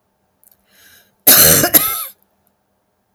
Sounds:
Cough